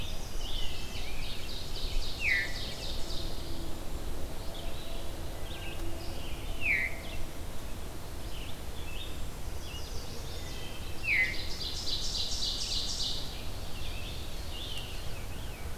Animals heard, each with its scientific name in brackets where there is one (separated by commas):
Ovenbird (Seiurus aurocapilla), Veery (Catharus fuscescens), Chestnut-sided Warbler (Setophaga pensylvanica), Wood Thrush (Hylocichla mustelina), Red-eyed Vireo (Vireo olivaceus), Scarlet Tanager (Piranga olivacea)